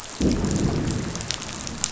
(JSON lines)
{"label": "biophony, growl", "recorder": "SoundTrap 500"}